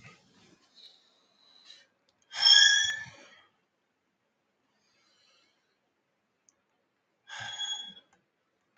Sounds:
Sigh